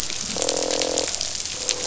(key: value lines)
label: biophony
recorder: SoundTrap 500

label: biophony, croak
recorder: SoundTrap 500